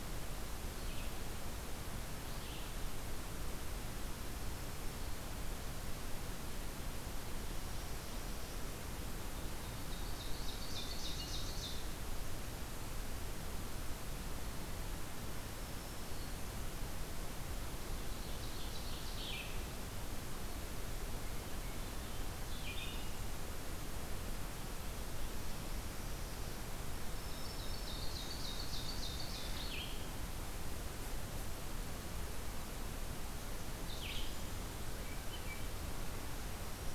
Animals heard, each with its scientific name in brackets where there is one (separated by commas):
Red-eyed Vireo (Vireo olivaceus), Black-throated Green Warbler (Setophaga virens), Ovenbird (Seiurus aurocapilla), Hermit Thrush (Catharus guttatus)